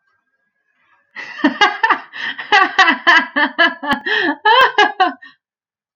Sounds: Laughter